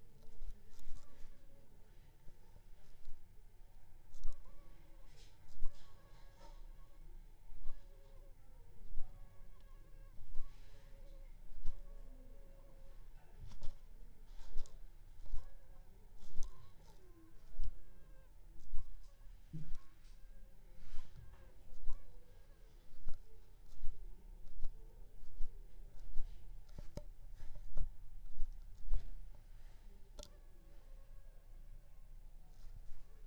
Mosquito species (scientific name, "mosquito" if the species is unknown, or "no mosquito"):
Aedes aegypti